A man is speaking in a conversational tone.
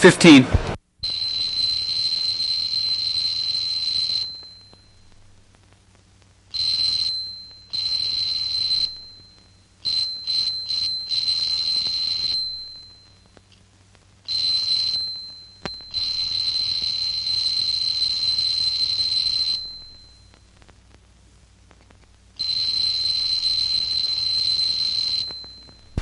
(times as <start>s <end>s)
0.0s 0.8s